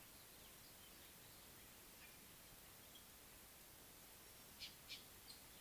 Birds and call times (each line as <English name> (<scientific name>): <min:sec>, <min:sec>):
Northern Puffback (Dryoscopus gambensis): 0:04.6